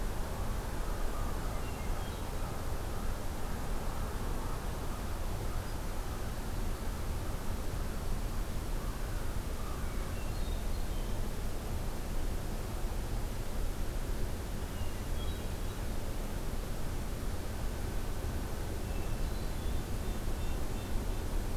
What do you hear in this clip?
Hermit Thrush, American Crow, Red-breasted Nuthatch